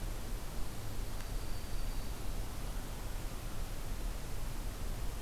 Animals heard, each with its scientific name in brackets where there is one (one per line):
Black-throated Green Warbler (Setophaga virens)